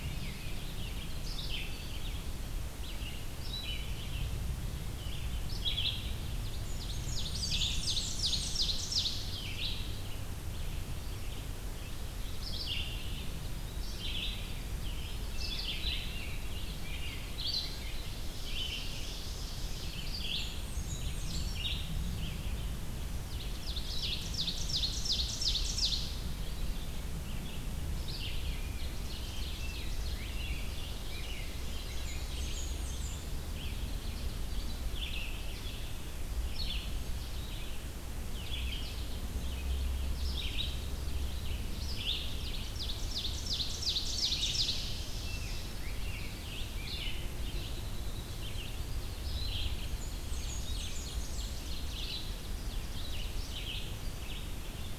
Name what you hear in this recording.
Rose-breasted Grosbeak, Red-eyed Vireo, Ovenbird, Blackburnian Warbler